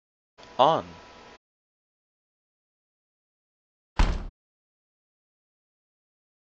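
First, at the start, someone says "on". After that, about 4 seconds in, a wooden door closes.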